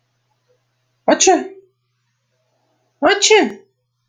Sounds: Sneeze